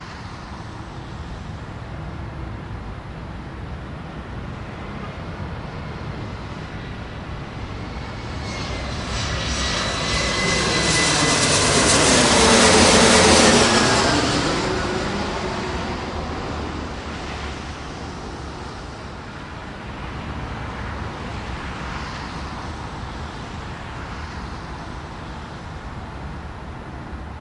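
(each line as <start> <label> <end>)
0.0 Cars pass by on the road with a steady, distant sound in the background. 27.4
8.8 An airplane passes overhead, its sound gradually intensifying and then decreasing as it moves away. 16.2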